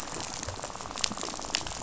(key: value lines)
label: biophony, rattle
recorder: SoundTrap 500